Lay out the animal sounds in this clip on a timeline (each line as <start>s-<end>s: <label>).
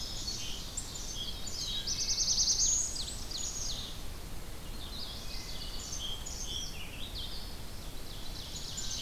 0.0s-4.2s: Song Sparrow (Melospiza melodia)
0.0s-9.0s: Red-eyed Vireo (Vireo olivaceus)
0.9s-3.0s: Black-throated Blue Warbler (Setophaga caerulescens)
1.5s-2.3s: Wood Thrush (Hylocichla mustelina)
2.4s-3.9s: Ovenbird (Seiurus aurocapilla)
5.0s-7.0s: Song Sparrow (Melospiza melodia)
5.1s-5.8s: Wood Thrush (Hylocichla mustelina)
7.8s-9.0s: Ovenbird (Seiurus aurocapilla)
8.5s-9.0s: Song Sparrow (Melospiza melodia)